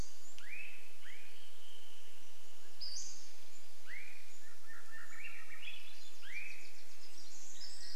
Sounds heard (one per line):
Pacific Wren song
Pacific-slope Flycatcher call
Swainson's Thrush song
Swainson's Thrush call
Wilson's Warbler song
insect buzz